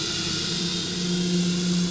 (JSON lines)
{"label": "anthrophony, boat engine", "recorder": "SoundTrap 500"}